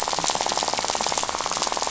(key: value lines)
label: biophony, rattle
recorder: SoundTrap 500